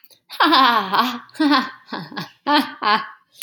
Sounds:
Laughter